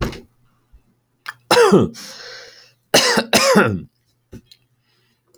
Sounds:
Cough